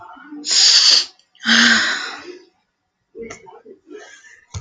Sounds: Sniff